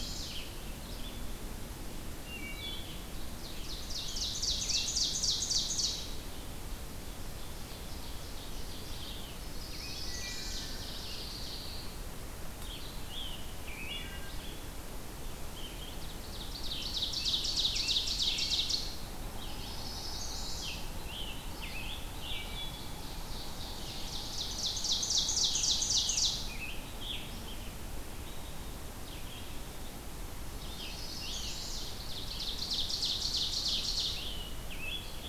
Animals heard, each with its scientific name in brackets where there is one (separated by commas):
Ovenbird (Seiurus aurocapilla), Wood Thrush (Hylocichla mustelina), Chestnut-sided Warbler (Setophaga pensylvanica), Red-eyed Vireo (Vireo olivaceus), Pine Warbler (Setophaga pinus), Scarlet Tanager (Piranga olivacea)